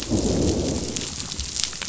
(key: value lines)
label: biophony, growl
recorder: SoundTrap 500